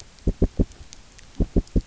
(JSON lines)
{"label": "biophony, knock", "recorder": "SoundTrap 300"}